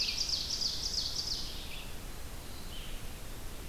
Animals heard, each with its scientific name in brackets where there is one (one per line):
Ovenbird (Seiurus aurocapilla)
Red-eyed Vireo (Vireo olivaceus)